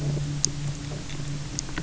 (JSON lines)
{"label": "anthrophony, boat engine", "recorder": "SoundTrap 300"}